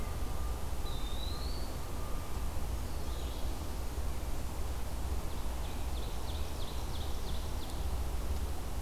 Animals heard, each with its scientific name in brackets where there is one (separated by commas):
Ovenbird (Seiurus aurocapilla), Eastern Wood-Pewee (Contopus virens)